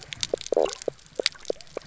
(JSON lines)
{"label": "biophony, knock croak", "recorder": "SoundTrap 300"}